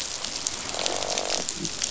{"label": "biophony, croak", "recorder": "SoundTrap 500"}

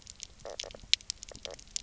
{"label": "biophony, knock croak", "recorder": "SoundTrap 300"}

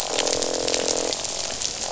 {"label": "biophony, croak", "recorder": "SoundTrap 500"}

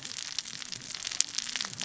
{"label": "biophony, cascading saw", "recorder": "SoundTrap 600 or HydroMoth"}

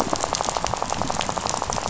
{"label": "biophony, rattle", "recorder": "SoundTrap 500"}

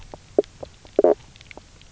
{"label": "biophony, knock croak", "recorder": "SoundTrap 300"}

